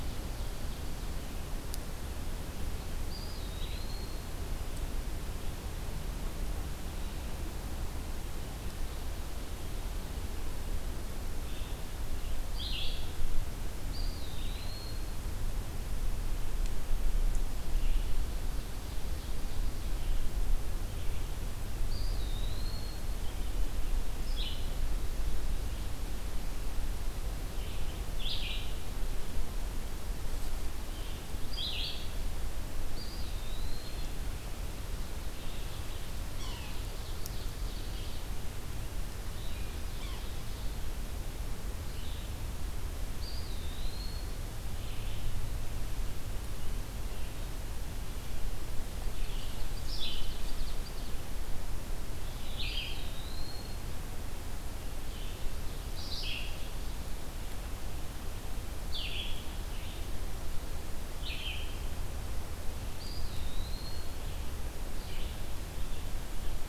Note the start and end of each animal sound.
[0.00, 1.31] Ovenbird (Seiurus aurocapilla)
[3.03, 4.47] Eastern Wood-Pewee (Contopus virens)
[12.33, 13.19] Blue-headed Vireo (Vireo solitarius)
[13.72, 15.19] Eastern Wood-Pewee (Contopus virens)
[17.96, 19.99] Ovenbird (Seiurus aurocapilla)
[21.75, 23.07] Eastern Wood-Pewee (Contopus virens)
[24.14, 45.52] Blue-headed Vireo (Vireo solitarius)
[24.41, 26.38] Ovenbird (Seiurus aurocapilla)
[32.81, 34.09] Eastern Wood-Pewee (Contopus virens)
[36.23, 36.82] Yellow-bellied Sapsucker (Sphyrapicus varius)
[36.61, 38.30] Ovenbird (Seiurus aurocapilla)
[39.91, 40.24] Yellow-bellied Sapsucker (Sphyrapicus varius)
[43.01, 44.32] Eastern Wood-Pewee (Contopus virens)
[48.95, 51.43] Ovenbird (Seiurus aurocapilla)
[49.90, 65.67] Blue-headed Vireo (Vireo solitarius)
[52.66, 53.84] Eastern Wood-Pewee (Contopus virens)
[62.77, 64.11] Eastern Wood-Pewee (Contopus virens)

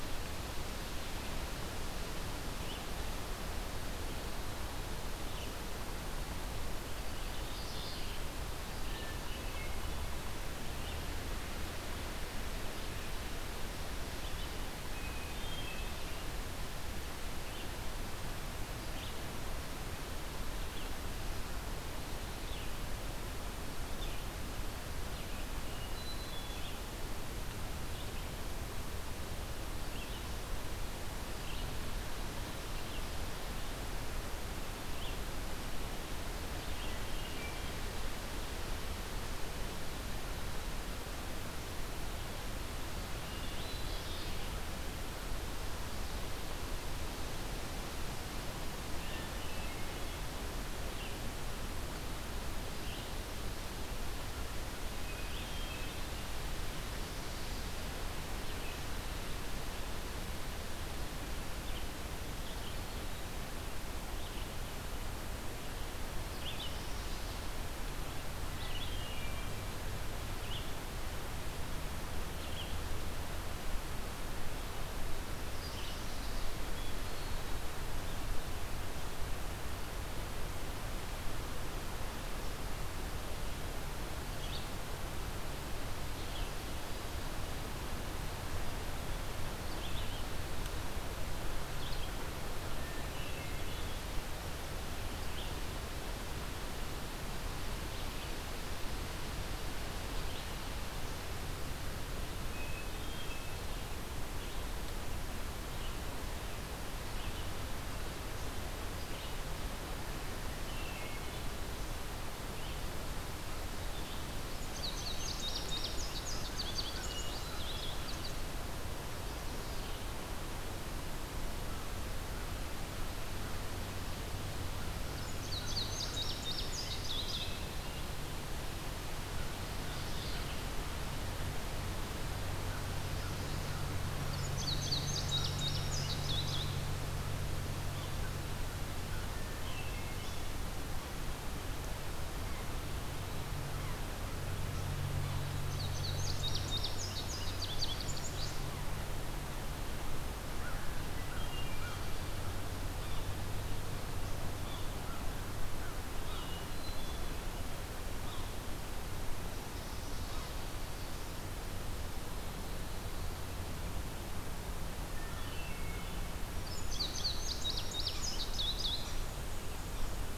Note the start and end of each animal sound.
[0.00, 37.03] Red-eyed Vireo (Vireo olivaceus)
[6.95, 8.26] Mourning Warbler (Geothlypis philadelphia)
[8.76, 10.11] Hermit Thrush (Catharus guttatus)
[14.76, 16.19] Hermit Thrush (Catharus guttatus)
[25.42, 26.77] Hermit Thrush (Catharus guttatus)
[36.65, 37.78] Hermit Thrush (Catharus guttatus)
[43.04, 44.02] Hermit Thrush (Catharus guttatus)
[43.38, 44.59] Mourning Warbler (Geothlypis philadelphia)
[48.44, 49.85] Hermit Thrush (Catharus guttatus)
[50.73, 100.51] Red-eyed Vireo (Vireo olivaceus)
[55.09, 56.17] Hermit Thrush (Catharus guttatus)
[62.62, 63.45] Hermit Thrush (Catharus guttatus)
[66.36, 67.54] Mourning Warbler (Geothlypis philadelphia)
[68.66, 69.73] Hermit Thrush (Catharus guttatus)
[75.26, 76.52] Mourning Warbler (Geothlypis philadelphia)
[76.64, 77.83] Hermit Thrush (Catharus guttatus)
[92.60, 94.04] Hermit Thrush (Catharus guttatus)
[102.48, 103.80] Hermit Thrush (Catharus guttatus)
[104.27, 120.11] Red-eyed Vireo (Vireo olivaceus)
[110.58, 111.51] Hermit Thrush (Catharus guttatus)
[114.57, 118.33] Indigo Bunting (Passerina cyanea)
[117.00, 117.86] Hermit Thrush (Catharus guttatus)
[125.01, 127.77] Indigo Bunting (Passerina cyanea)
[126.70, 128.09] Hermit Thrush (Catharus guttatus)
[129.51, 130.68] Mourning Warbler (Geothlypis philadelphia)
[134.14, 136.86] Indigo Bunting (Passerina cyanea)
[139.10, 140.50] Hermit Thrush (Catharus guttatus)
[145.42, 148.71] Indigo Bunting (Passerina cyanea)
[150.46, 152.08] American Crow (Corvus brachyrhynchos)
[151.19, 152.01] Hermit Thrush (Catharus guttatus)
[152.95, 153.29] Yellow-bellied Sapsucker (Sphyrapicus varius)
[154.51, 155.00] Yellow-bellied Sapsucker (Sphyrapicus varius)
[154.85, 156.51] American Crow (Corvus brachyrhynchos)
[156.19, 156.55] Yellow-bellied Sapsucker (Sphyrapicus varius)
[156.41, 157.48] Hermit Thrush (Catharus guttatus)
[158.20, 158.47] Yellow-bellied Sapsucker (Sphyrapicus varius)
[165.11, 166.27] Hermit Thrush (Catharus guttatus)
[166.38, 169.22] Indigo Bunting (Passerina cyanea)
[168.68, 170.37] Black-and-white Warbler (Mniotilta varia)

